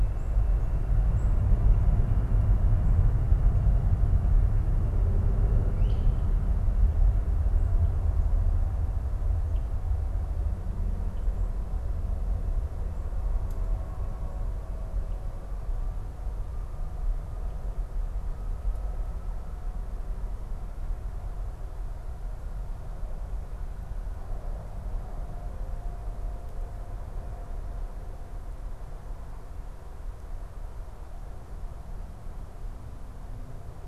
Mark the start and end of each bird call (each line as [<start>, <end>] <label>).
[0.90, 1.40] Black-capped Chickadee (Poecile atricapillus)
[5.59, 6.29] Great Crested Flycatcher (Myiarchus crinitus)